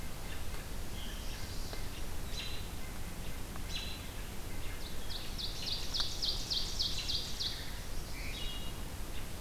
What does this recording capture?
Chestnut-sided Warbler, American Robin, Ovenbird, Hermit Thrush